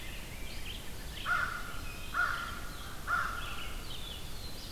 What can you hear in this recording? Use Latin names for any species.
Pheucticus ludovicianus, Vireo olivaceus, Corvus brachyrhynchos, Setophaga caerulescens